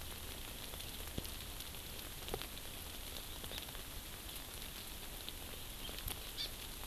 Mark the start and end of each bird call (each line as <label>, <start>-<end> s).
Hawaii Amakihi (Chlorodrepanis virens), 3.5-3.6 s
Hawaii Amakihi (Chlorodrepanis virens), 6.4-6.5 s